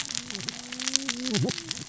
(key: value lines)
label: biophony, cascading saw
recorder: SoundTrap 600 or HydroMoth